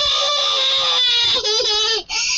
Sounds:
Sneeze